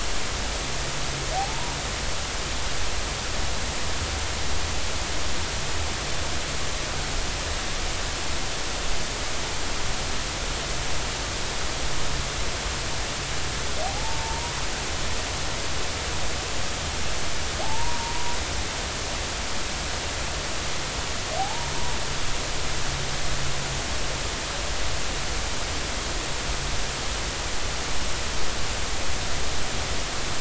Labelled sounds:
1.4	1.7	humpback whale, 0.80 to 1.0 kHz
13.8	14.6	humpback whale, 0.80 to 1.1 kHz
17.6	18.4	humpback whale, 0.80 to 1.1 kHz
21.4	21.7	humpback whale, 0.80 to 0.99 kHz

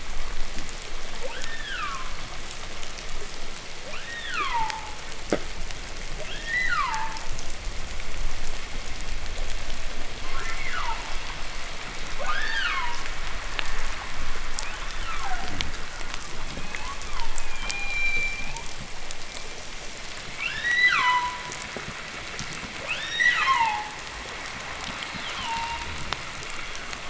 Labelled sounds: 0.3	0.8	fish, groan, 0.03 to 0.43 kHz
1.1	2.4	humpback whale, 0.40 to 3.8 kHz
3.6	5.1	humpback whale, 0.40 to 4.0 kHz
6.1	7.3	humpback whale, 0.32 to 4.3 kHz
10.1	11.0	humpback whale, 0.84 to 2.3 kHz
12.0	13.0	humpback whale, 0.47 to 5.4 kHz
14.3	15.5	humpback whale, 0.62 to 3.9 kHz
15.3	15.8	fish, groan, 0.03 to 0.37 kHz
16.1	18.7	humpback whale, 0.70 to 7.6 kHz
16.4	19.0	fish, groan and knock, 0.03 to 0.32 kHz
20.2	21.6	humpback whale, 0.88 to 8.0 kHz
20.7	23.0	fish, knock, 0 to 0.32 kHz
22.7	24.0	humpback whale, 0.59 to 7.3 kHz
24.4	26.4	fish, knock and groan, 0.01 to 0.38 kHz
24.9	26.0	humpback whale, 0.70 to 4.6 kHz

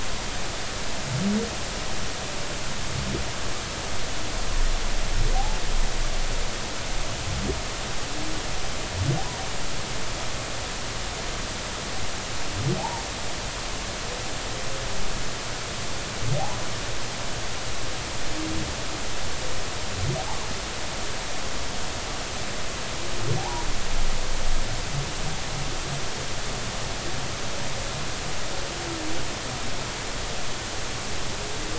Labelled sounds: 12.8	13.0	humpback whale, 0.80 to 1.0 kHz
23.4	23.7	humpback whale, 0.80 to 1.0 kHz

